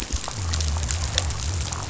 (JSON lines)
{"label": "biophony", "recorder": "SoundTrap 500"}